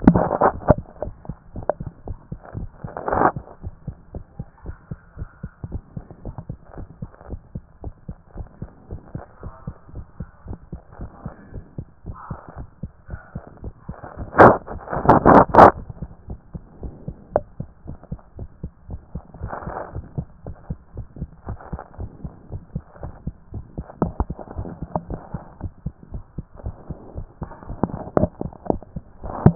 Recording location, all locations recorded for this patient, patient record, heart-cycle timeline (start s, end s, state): tricuspid valve (TV)
aortic valve (AV)+pulmonary valve (PV)+tricuspid valve (TV)+mitral valve (MV)
#Age: Child
#Sex: Male
#Height: 134.0 cm
#Weight: 39.9 kg
#Pregnancy status: False
#Murmur: Absent
#Murmur locations: nan
#Most audible location: nan
#Systolic murmur timing: nan
#Systolic murmur shape: nan
#Systolic murmur grading: nan
#Systolic murmur pitch: nan
#Systolic murmur quality: nan
#Diastolic murmur timing: nan
#Diastolic murmur shape: nan
#Diastolic murmur grading: nan
#Diastolic murmur pitch: nan
#Diastolic murmur quality: nan
#Outcome: Normal
#Campaign: 2014 screening campaign
0.00	3.64	unannotated
3.64	3.74	S1
3.74	3.86	systole
3.86	3.96	S2
3.96	4.14	diastole
4.14	4.24	S1
4.24	4.38	systole
4.38	4.46	S2
4.46	4.66	diastole
4.66	4.76	S1
4.76	4.90	systole
4.90	4.98	S2
4.98	5.18	diastole
5.18	5.28	S1
5.28	5.42	systole
5.42	5.50	S2
5.50	5.70	diastole
5.70	5.82	S1
5.82	5.96	systole
5.96	6.04	S2
6.04	6.24	diastole
6.24	6.36	S1
6.36	6.48	systole
6.48	6.58	S2
6.58	6.76	diastole
6.76	6.88	S1
6.88	7.00	systole
7.00	7.10	S2
7.10	7.28	diastole
7.28	7.40	S1
7.40	7.54	systole
7.54	7.64	S2
7.64	7.82	diastole
7.82	7.94	S1
7.94	8.08	systole
8.08	8.16	S2
8.16	8.36	diastole
8.36	8.48	S1
8.48	8.60	systole
8.60	8.70	S2
8.70	8.90	diastole
8.90	9.00	S1
9.00	9.14	systole
9.14	9.24	S2
9.24	9.42	diastole
9.42	9.54	S1
9.54	9.66	systole
9.66	9.76	S2
9.76	9.94	diastole
9.94	10.06	S1
10.06	10.20	systole
10.20	10.28	S2
10.28	10.48	diastole
10.48	10.58	S1
10.58	10.72	systole
10.72	10.80	S2
10.80	11.00	diastole
11.00	11.10	S1
11.10	11.24	systole
11.24	11.34	S2
11.34	11.52	diastole
11.52	11.64	S1
11.64	11.78	systole
11.78	11.86	S2
11.86	12.06	diastole
12.06	12.16	S1
12.16	12.30	systole
12.30	12.38	S2
12.38	12.58	diastole
12.58	12.68	S1
12.68	12.82	systole
12.82	12.92	S2
12.92	13.10	diastole
13.10	13.20	S1
13.20	13.34	systole
13.34	13.44	S2
13.44	13.64	diastole
13.64	13.74	S1
13.74	13.88	systole
13.88	13.96	S2
13.96	14.18	diastole
14.18	29.55	unannotated